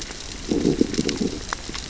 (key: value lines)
label: biophony, growl
recorder: SoundTrap 600 or HydroMoth